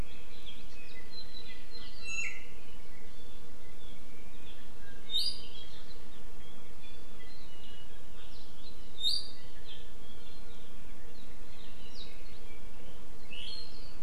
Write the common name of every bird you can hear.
Iiwi, Apapane